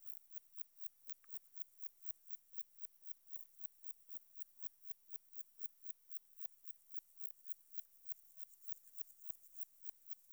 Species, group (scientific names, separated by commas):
Metrioptera saussuriana, Orthoptera